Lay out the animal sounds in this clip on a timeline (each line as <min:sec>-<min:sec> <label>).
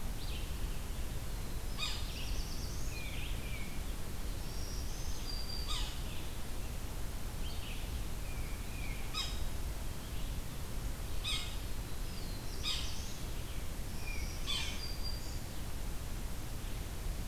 0:00.0-0:17.3 Red-eyed Vireo (Vireo olivaceus)
0:01.6-0:02.4 Yellow-bellied Sapsucker (Sphyrapicus varius)
0:01.7-0:03.0 Black-throated Blue Warbler (Setophaga caerulescens)
0:02.9-0:04.0 Tufted Titmouse (Baeolophus bicolor)
0:04.4-0:06.3 Black-throated Green Warbler (Setophaga virens)
0:05.5-0:06.2 Yellow-bellied Sapsucker (Sphyrapicus varius)
0:08.1-0:09.2 Tufted Titmouse (Baeolophus bicolor)
0:09.0-0:09.8 Yellow-bellied Sapsucker (Sphyrapicus varius)
0:11.1-0:12.9 Yellow-bellied Sapsucker (Sphyrapicus varius)
0:11.5-0:13.3 Black-throated Blue Warbler (Setophaga caerulescens)
0:13.9-0:15.6 Black-throated Green Warbler (Setophaga virens)
0:13.9-0:14.5 Tufted Titmouse (Baeolophus bicolor)
0:14.2-0:14.9 Yellow-bellied Sapsucker (Sphyrapicus varius)